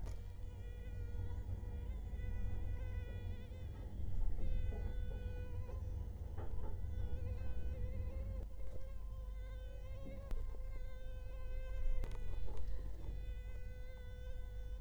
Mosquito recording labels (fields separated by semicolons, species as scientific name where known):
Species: Culex quinquefasciatus; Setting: cup